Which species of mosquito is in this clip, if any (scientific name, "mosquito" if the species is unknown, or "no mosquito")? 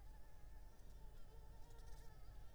Anopheles arabiensis